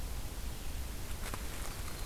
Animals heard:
Red-eyed Vireo (Vireo olivaceus)

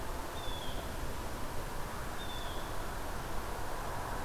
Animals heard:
Blue Jay (Cyanocitta cristata)

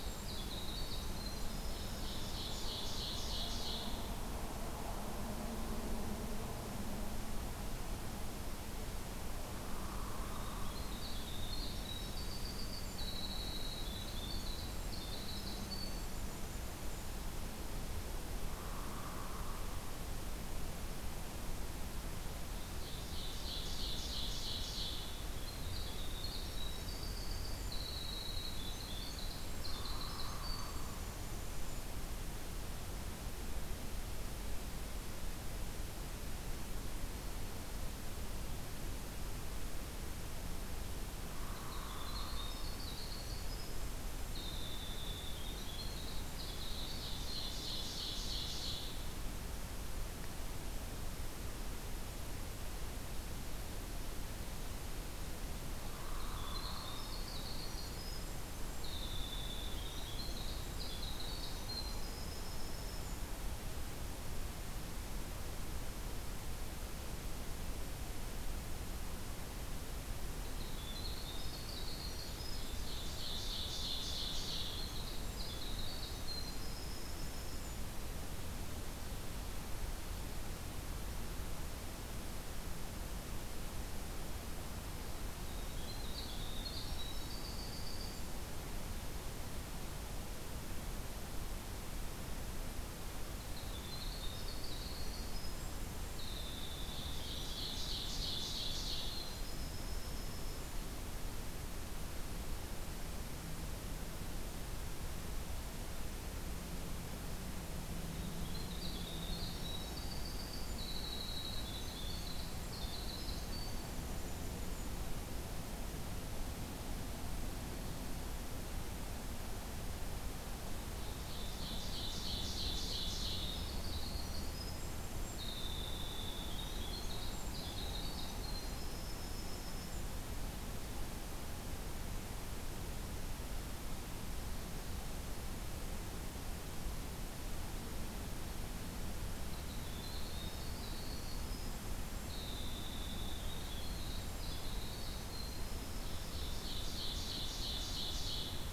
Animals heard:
Ovenbird (Seiurus aurocapilla), Winter Wren (Troglodytes hiemalis), Hairy Woodpecker (Dryobates villosus)

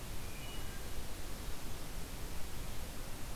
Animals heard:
Wood Thrush (Hylocichla mustelina)

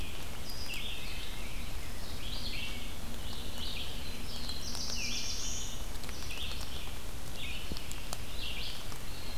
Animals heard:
Red-eyed Vireo (Vireo olivaceus), Black-throated Blue Warbler (Setophaga caerulescens)

